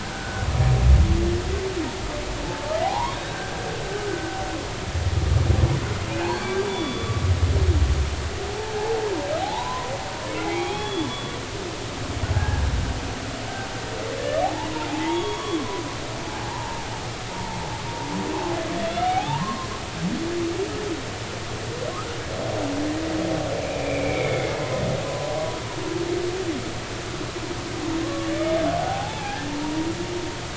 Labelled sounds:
0.0	0.5	humpback whale, 1.3 to 1.7 kHz
2.8	3.7	humpback whale, 0.80 to 3.9 kHz
4.1	4.4	humpback whale, 1.4 to 1.6 kHz
6.2	7.1	humpback whale, 1.5 to 4.6 kHz
8.6	9.9	humpback whale, 0.80 to 1.1 kHz
10.4	11.1	humpback whale, 0.80 to 3.5 kHz
12.3	12.6	humpback whale, 1.5 to 1.7 kHz
14.4	16.9	humpback whale, 0.80 to 3.4 kHz
17.3	17.6	humpback whale, 0.83 to 0.99 kHz
18.8	19.7	humpback whale, 0.80 to 3.8 kHz
23.6	25.4	humpback whale, 0.90 to 2.6 kHz
28.0	28.3	humpback whale, 1.0 to 1.2 kHz
28.8	29.9	humpback whale, 0.80 to 1.8 kHz

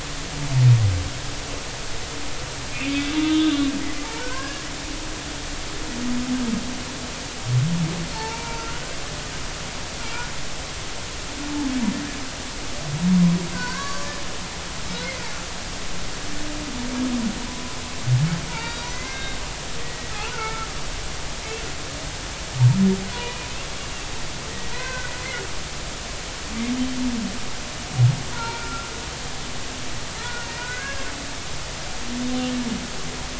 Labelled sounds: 3.2	4.7	humpback whale, 0.83 to 1.8 kHz
8.1	8.8	humpback whale, 0.83 to 1.5 kHz
13.5	14.1	humpback whale, 0.93 to 1.8 kHz
14.9	15.2	humpback whale, 3.8 to 4.3 kHz
18.5	19.4	humpback whale, 0.86 to 4.8 kHz
19.8	20.7	humpback whale, 0.83 to 2.3 kHz
23.1	23.7	humpback whale, 0.90 to 2.8 kHz
24.7	25.1	humpback whale, 0.90 to 2.6 kHz
28.3	28.9	humpback whale, 0.86 to 1.5 kHz
30.2	31.0	humpback whale, 1.3 to 1.7 kHz

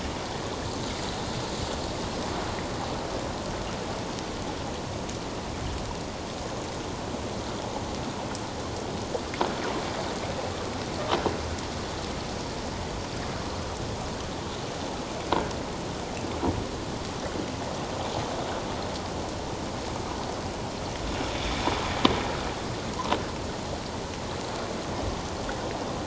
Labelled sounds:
21.3	21.6	sound from a nearby beach, 3.4 to 3.8 kHz

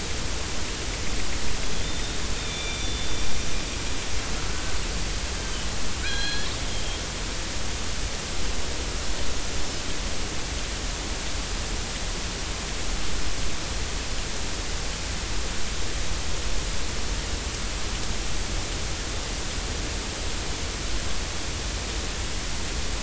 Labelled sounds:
1.8	3.1	killer whale, northern resident, 2.3 to 5.8 kHz
4.5	4.7	killer whale, northern resident, 1.3 to 1.6 kHz
5.4	7.0	killer whale, northern resident, 1.4 to 4.2 kHz

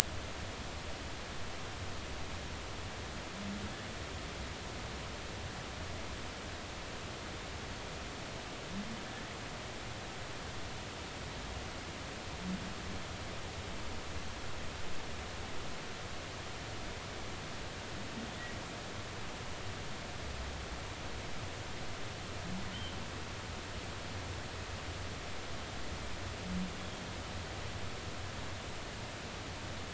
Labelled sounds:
22.7	23.0	humpback whale, 2.9 to 3.2 kHz

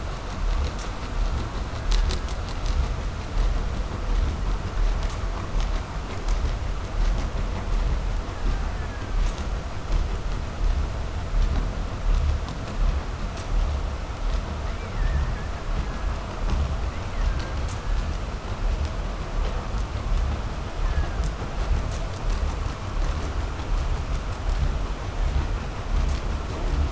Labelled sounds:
8.0	9.7	killer whale, Bigg's (transient), 0.42 to 2.6 kHz
14.5	16.5	killer whale, Bigg's (transient), call T07, 1.2 to 3.0 kHz
16.8	18.4	killer whale, Bigg's (transient), call T07, 1.3 to 2.7 kHz
20.5	21.6	killer whale, Bigg's (transient), 0.59 to 2.1 kHz
24.9	25.8	killer whale, Bigg's (transient), 0.85 to 2.6 kHz

